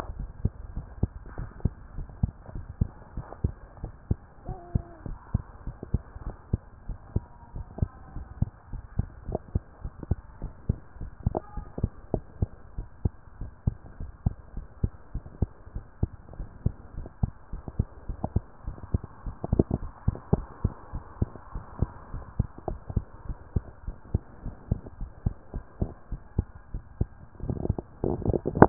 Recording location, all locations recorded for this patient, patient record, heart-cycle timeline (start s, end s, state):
pulmonary valve (PV)
pulmonary valve (PV)+tricuspid valve (TV)
#Age: Child
#Sex: Male
#Height: 126.0 cm
#Weight: 33.6 kg
#Pregnancy status: False
#Murmur: Absent
#Murmur locations: nan
#Most audible location: nan
#Systolic murmur timing: nan
#Systolic murmur shape: nan
#Systolic murmur grading: nan
#Systolic murmur pitch: nan
#Systolic murmur quality: nan
#Diastolic murmur timing: nan
#Diastolic murmur shape: nan
#Diastolic murmur grading: nan
#Diastolic murmur pitch: nan
#Diastolic murmur quality: nan
#Outcome: Normal
#Campaign: 2014 screening campaign
0.00	0.18	unannotated
0.18	0.28	S1
0.28	0.42	systole
0.42	0.50	S2
0.50	0.74	diastole
0.74	0.86	S1
0.86	1.00	systole
1.00	1.10	S2
1.10	1.38	diastole
1.38	1.48	S1
1.48	1.64	systole
1.64	1.72	S2
1.72	1.96	diastole
1.96	2.08	S1
2.08	2.22	systole
2.22	2.32	S2
2.32	2.54	diastole
2.54	2.66	S1
2.66	2.80	systole
2.80	2.90	S2
2.90	3.16	diastole
3.16	3.26	S1
3.26	3.42	systole
3.42	3.54	S2
3.54	3.82	diastole
3.82	3.92	S1
3.92	4.08	systole
4.08	4.18	S2
4.18	4.46	diastole
4.46	4.58	S1
4.58	4.74	systole
4.74	4.82	S2
4.82	5.06	diastole
5.06	5.18	S1
5.18	5.32	systole
5.32	5.44	S2
5.44	5.66	diastole
5.66	5.76	S1
5.76	5.92	systole
5.92	6.02	S2
6.02	6.24	diastole
6.24	6.36	S1
6.36	6.52	systole
6.52	6.60	S2
6.60	6.88	diastole
6.88	6.98	S1
6.98	7.14	systole
7.14	7.24	S2
7.24	7.54	diastole
7.54	7.66	S1
7.66	7.80	systole
7.80	7.90	S2
7.90	8.14	diastole
8.14	8.26	S1
8.26	8.40	systole
8.40	8.50	S2
8.50	8.72	diastole
8.72	8.82	S1
8.82	8.96	systole
8.96	9.06	S2
9.06	9.28	diastole
9.28	9.40	S1
9.40	9.54	systole
9.54	9.64	S2
9.64	9.82	diastole
9.82	9.92	S1
9.92	10.08	systole
10.08	10.18	S2
10.18	10.40	diastole
10.40	10.52	S1
10.52	10.68	systole
10.68	10.78	S2
10.78	11.00	diastole
11.00	11.10	S1
11.10	11.24	systole
11.24	11.36	S2
11.36	11.56	diastole
11.56	11.66	S1
11.66	11.80	systole
11.80	11.90	S2
11.90	12.12	diastole
12.12	12.24	S1
12.24	12.40	systole
12.40	12.50	S2
12.50	12.76	diastole
12.76	12.88	S1
12.88	13.04	systole
13.04	13.12	S2
13.12	13.40	diastole
13.40	13.50	S1
13.50	13.66	systole
13.66	13.76	S2
13.76	14.00	diastole
14.00	14.10	S1
14.10	14.24	systole
14.24	14.34	S2
14.34	14.56	diastole
14.56	14.66	S1
14.66	14.82	systole
14.82	14.92	S2
14.92	15.14	diastole
15.14	15.24	S1
15.24	15.40	systole
15.40	15.50	S2
15.50	15.74	diastole
15.74	15.84	S1
15.84	16.00	systole
16.00	16.10	S2
16.10	16.38	diastole
16.38	16.48	S1
16.48	16.64	systole
16.64	16.74	S2
16.74	16.96	diastole
16.96	17.08	S1
17.08	17.22	systole
17.22	17.32	S2
17.32	17.52	diastole
17.52	17.62	S1
17.62	17.78	systole
17.78	17.88	S2
17.88	18.08	diastole
18.08	18.18	S1
18.18	18.34	systole
18.34	18.42	S2
18.42	18.66	diastole
18.66	18.76	S1
18.76	18.92	systole
18.92	19.02	S2
19.02	19.28	diastole
19.28	28.69	unannotated